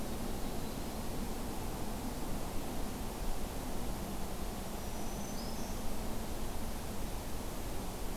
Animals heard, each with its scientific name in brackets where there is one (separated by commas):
Black-throated Green Warbler (Setophaga virens), Yellow-rumped Warbler (Setophaga coronata)